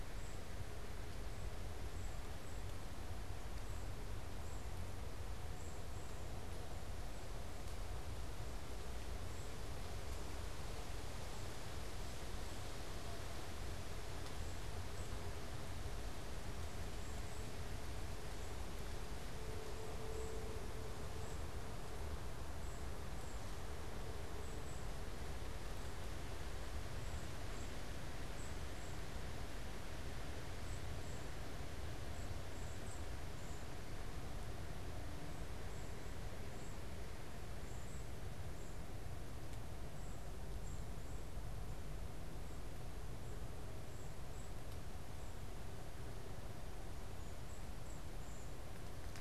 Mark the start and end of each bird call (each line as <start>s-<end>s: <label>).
0.0s-40.8s: Golden-crowned Kinglet (Regulus satrapa)
43.8s-48.6s: Golden-crowned Kinglet (Regulus satrapa)